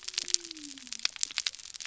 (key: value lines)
label: biophony
recorder: SoundTrap 300